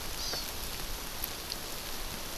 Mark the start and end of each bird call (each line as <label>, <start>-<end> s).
Hawaii Amakihi (Chlorodrepanis virens), 0.2-0.5 s